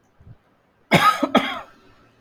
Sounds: Cough